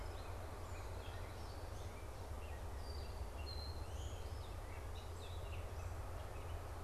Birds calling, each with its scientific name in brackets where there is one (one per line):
Gray Catbird (Dumetella carolinensis)